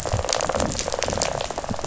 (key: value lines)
label: biophony, rattle
recorder: SoundTrap 500